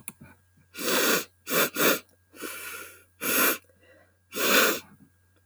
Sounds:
Sniff